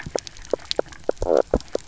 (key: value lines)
label: biophony, knock croak
recorder: SoundTrap 300